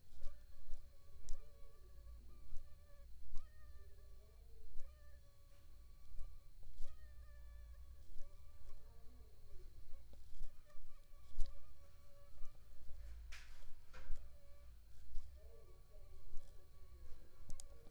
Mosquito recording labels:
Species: Aedes aegypti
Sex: female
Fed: unfed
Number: one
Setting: cup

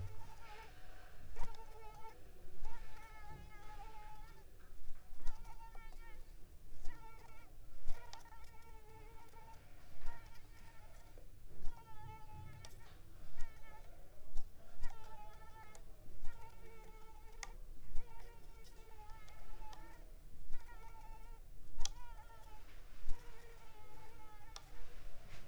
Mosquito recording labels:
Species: Culex pipiens complex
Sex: female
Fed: unfed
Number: one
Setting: cup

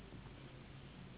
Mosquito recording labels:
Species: Anopheles gambiae s.s.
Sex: female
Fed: unfed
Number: one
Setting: insect culture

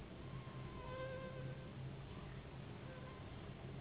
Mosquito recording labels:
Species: Anopheles gambiae s.s.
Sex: female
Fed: unfed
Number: one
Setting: insect culture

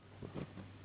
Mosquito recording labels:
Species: Anopheles gambiae s.s.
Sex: female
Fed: unfed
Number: one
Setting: insect culture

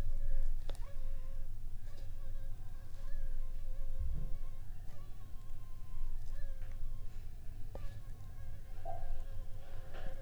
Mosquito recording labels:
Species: Anopheles funestus s.s.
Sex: female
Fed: unfed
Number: one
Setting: cup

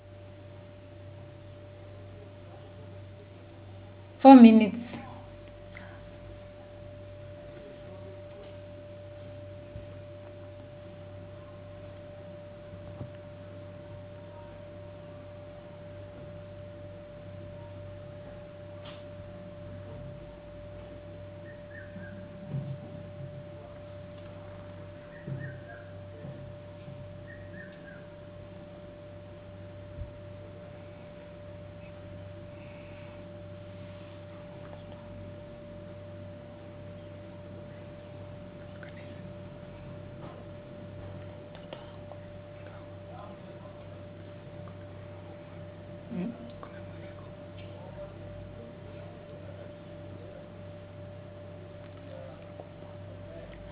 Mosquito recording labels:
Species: no mosquito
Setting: insect culture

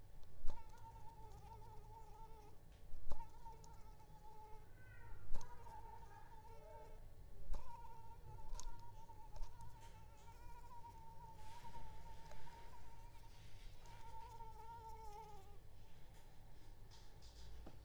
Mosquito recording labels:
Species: Anopheles arabiensis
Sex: female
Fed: unfed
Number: one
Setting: cup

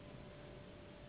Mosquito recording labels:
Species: Anopheles gambiae s.s.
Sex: female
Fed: unfed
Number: one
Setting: insect culture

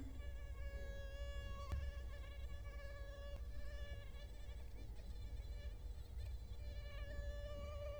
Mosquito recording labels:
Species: Culex quinquefasciatus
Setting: cup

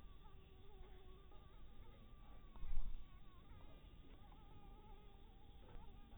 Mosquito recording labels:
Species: mosquito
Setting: cup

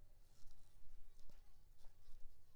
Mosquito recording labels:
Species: Anopheles maculipalpis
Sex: female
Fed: unfed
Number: one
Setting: cup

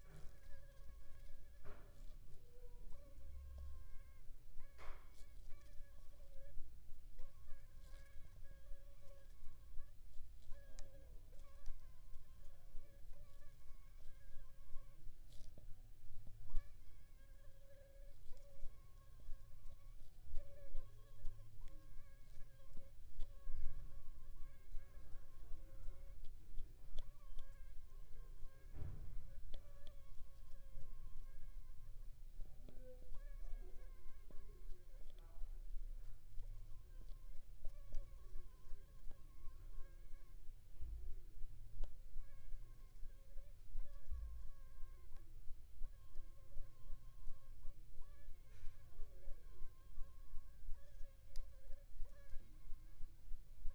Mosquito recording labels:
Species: Aedes aegypti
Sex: female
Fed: unfed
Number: one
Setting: cup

